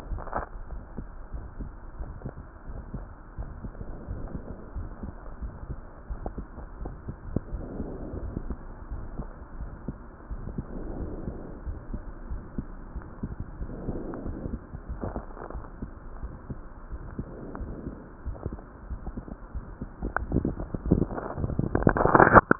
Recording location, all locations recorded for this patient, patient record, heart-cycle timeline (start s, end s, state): aortic valve (AV)
aortic valve (AV)+pulmonary valve (PV)+tricuspid valve (TV)
#Age: nan
#Sex: Female
#Height: nan
#Weight: nan
#Pregnancy status: True
#Murmur: Absent
#Murmur locations: nan
#Most audible location: nan
#Systolic murmur timing: nan
#Systolic murmur shape: nan
#Systolic murmur grading: nan
#Systolic murmur pitch: nan
#Systolic murmur quality: nan
#Diastolic murmur timing: nan
#Diastolic murmur shape: nan
#Diastolic murmur grading: nan
#Diastolic murmur pitch: nan
#Diastolic murmur quality: nan
#Outcome: Normal
#Campaign: 2015 screening campaign
0.00	0.68	unannotated
0.68	0.82	S1
0.82	0.96	systole
0.96	1.02	S2
1.02	1.32	diastole
1.32	1.38	S1
1.38	1.58	systole
1.58	1.67	S2
1.67	1.99	diastole
1.99	2.09	S1
2.09	2.24	systole
2.24	2.31	S2
2.31	2.68	diastole
2.68	2.80	S1
2.80	2.92	systole
2.92	3.03	S2
3.03	3.36	diastole
3.36	3.48	S1
3.48	3.60	systole
3.60	3.72	S2
3.72	4.08	diastole
4.08	4.22	S1
4.22	4.32	systole
4.32	4.42	S2
4.42	4.74	diastole
4.74	4.88	S1
4.88	5.02	systole
5.02	5.15	S2
5.15	5.41	diastole
5.41	5.51	S1
5.51	5.67	systole
5.67	5.76	S2
5.76	6.08	diastole
6.08	6.21	S1
6.21	6.34	systole
6.34	6.46	S2
6.46	6.78	diastole
6.78	6.93	S1
6.93	7.06	systole
7.06	7.14	S2
7.14	7.52	diastole
7.52	7.63	S1
7.63	7.77	systole
7.77	7.87	S2
7.87	8.14	diastole
8.14	8.21	S1
8.21	8.44	systole
8.44	8.56	S2
8.56	8.88	diastole
8.88	9.02	S1
9.02	9.14	systole
9.14	9.28	S2
9.28	9.58	diastole
9.58	9.70	S1
9.70	9.86	systole
9.86	9.96	S2
9.96	10.30	diastole
10.30	10.41	S1
10.41	10.56	systole
10.56	10.65	S2
10.65	10.97	diastole
10.97	11.09	S1
11.09	11.25	systole
11.25	11.34	S2
11.34	11.64	diastole
11.64	11.78	S1
11.78	11.90	systole
11.90	12.00	S2
12.00	12.28	diastole
12.28	12.42	S1
12.42	12.56	systole
12.56	12.66	S2
12.66	12.94	diastole
12.94	22.59	unannotated